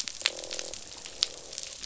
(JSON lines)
{"label": "biophony, croak", "recorder": "SoundTrap 500"}